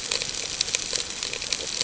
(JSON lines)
{"label": "ambient", "recorder": "HydroMoth"}